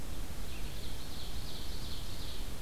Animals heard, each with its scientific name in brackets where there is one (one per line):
Ovenbird (Seiurus aurocapilla)